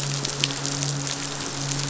{"label": "biophony, midshipman", "recorder": "SoundTrap 500"}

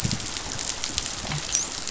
{"label": "biophony, dolphin", "recorder": "SoundTrap 500"}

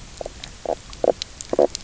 {"label": "biophony, knock croak", "recorder": "SoundTrap 300"}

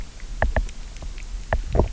{"label": "biophony, knock", "recorder": "SoundTrap 300"}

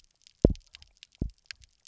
{"label": "biophony, double pulse", "recorder": "SoundTrap 300"}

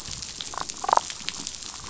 {"label": "biophony, damselfish", "recorder": "SoundTrap 500"}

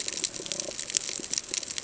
{"label": "ambient", "recorder": "HydroMoth"}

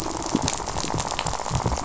{"label": "biophony, rattle", "recorder": "SoundTrap 500"}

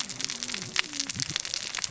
{"label": "biophony, cascading saw", "recorder": "SoundTrap 600 or HydroMoth"}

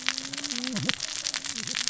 {"label": "biophony, cascading saw", "recorder": "SoundTrap 600 or HydroMoth"}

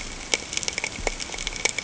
{"label": "ambient", "recorder": "HydroMoth"}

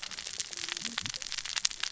{"label": "biophony, cascading saw", "recorder": "SoundTrap 600 or HydroMoth"}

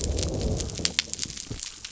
{"label": "biophony", "recorder": "SoundTrap 300"}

